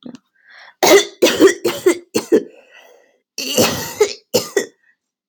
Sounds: Cough